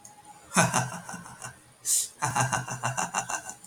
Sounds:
Laughter